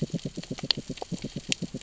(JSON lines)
{"label": "biophony, grazing", "recorder": "SoundTrap 600 or HydroMoth"}